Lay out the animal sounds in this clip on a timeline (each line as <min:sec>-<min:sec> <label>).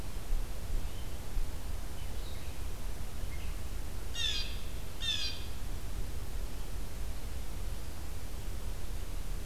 0:00.6-0:04.9 Red-eyed Vireo (Vireo olivaceus)
0:04.1-0:04.5 Blue Jay (Cyanocitta cristata)
0:04.9-0:05.5 Blue Jay (Cyanocitta cristata)